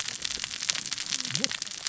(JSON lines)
{"label": "biophony, cascading saw", "recorder": "SoundTrap 600 or HydroMoth"}